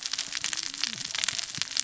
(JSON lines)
{"label": "biophony, cascading saw", "recorder": "SoundTrap 600 or HydroMoth"}